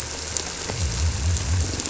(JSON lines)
{"label": "anthrophony, boat engine", "recorder": "SoundTrap 300"}
{"label": "biophony, squirrelfish (Holocentrus)", "recorder": "SoundTrap 300"}
{"label": "biophony", "recorder": "SoundTrap 300"}